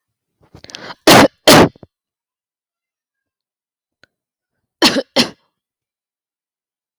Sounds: Cough